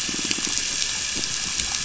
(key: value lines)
label: biophony
recorder: SoundTrap 500